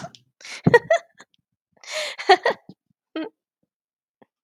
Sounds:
Laughter